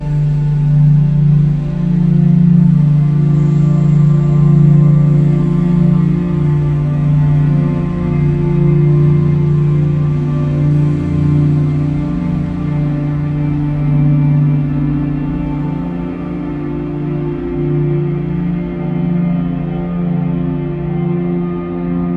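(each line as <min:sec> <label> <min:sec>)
0:00.0 Ambient noise with filtered harmonic sounds slowly fading. 0:22.2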